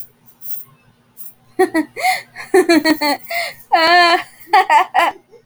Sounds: Laughter